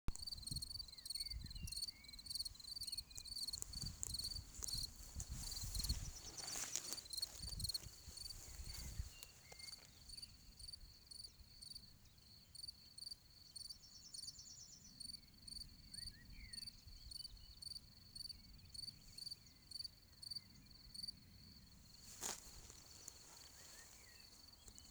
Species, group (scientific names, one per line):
Gryllus campestris
Orthoptera